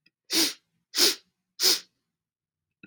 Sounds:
Sniff